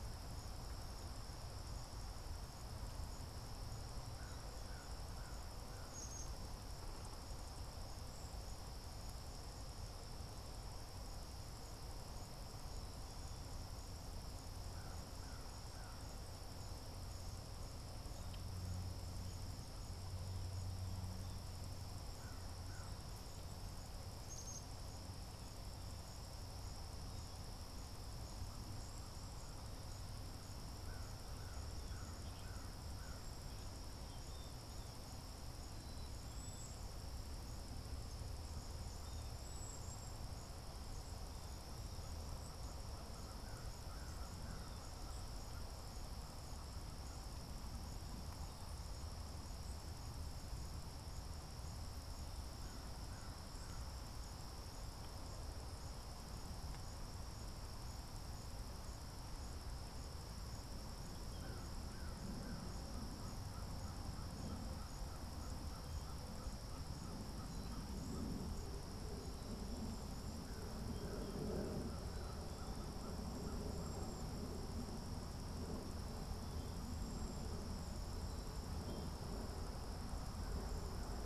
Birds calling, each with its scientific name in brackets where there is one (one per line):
Cedar Waxwing (Bombycilla cedrorum)
unidentified bird
American Crow (Corvus brachyrhynchos)
Black-capped Chickadee (Poecile atricapillus)